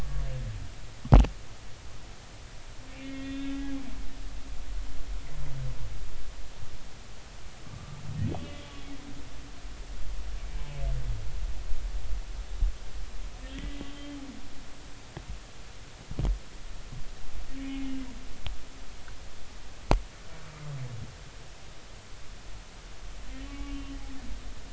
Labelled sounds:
3.0	4.6	humpback whale, 1.8 to 3.6 kHz
7.7	8.0	humpback whale, 1.1 to 1.2 kHz
13.4	14.2	humpback whale, 1.8 to 3.2 kHz
17.6	17.9	humpback whale, 2.1 to 2.6 kHz
23.5	23.9	humpback whale, 1.1 to 2.9 kHz

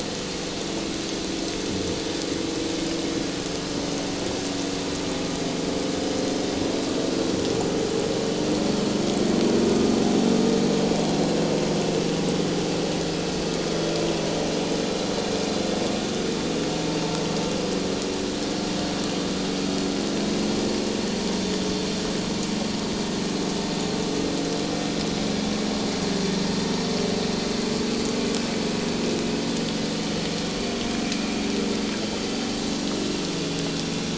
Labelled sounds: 28.5	28.8	vessel noise, 5.0 to 5.2 kHz

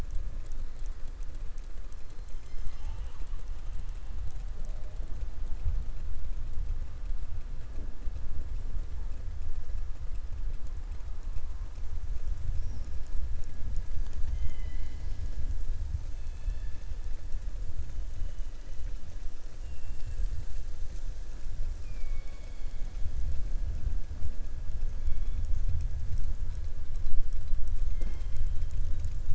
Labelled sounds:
13.9	15.2	killer whale, southern resident, 1.9 to 7.4 kHz
16.1	16.8	killer whale, southern resident, 1.7 to 4.4 kHz
19.5	20.3	killer whale, southern resident, 1.8 to 5.3 kHz
21.7	22.9	killer whale, southern resident, 0.59 to 4.5 kHz

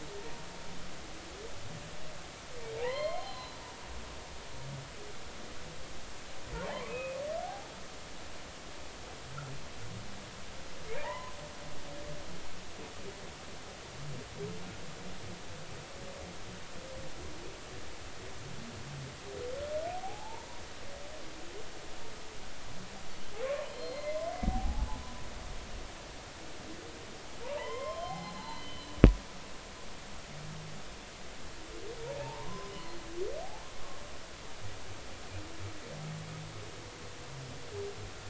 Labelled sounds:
2.8	3.6	humpback whale, 0.80 to 4.3 kHz
6.9	7.2	humpback whale, 2.4 to 2.6 kHz
7.4	7.7	humpback whale, 0.80 to 0.93 kHz
10.9	11.4	humpback whale, 0.80 to 2.1 kHz
19.9	20.5	humpback whale, 0.80 to 1.0 kHz
23.7	24.9	humpback whale, 0.80 to 4.3 kHz
27.6	28.9	humpback whale, 0.80 to 4.2 kHz
32.2	32.7	humpback whale, 0.80 to 1.1 kHz

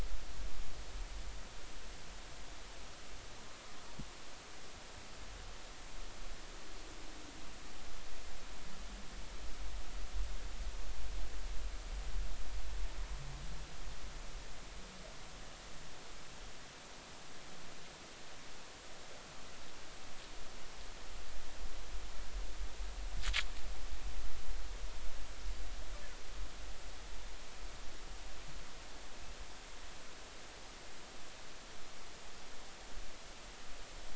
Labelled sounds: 3.3	3.6	humpback whale, 0.90 to 1.2 kHz

